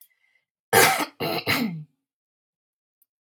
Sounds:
Throat clearing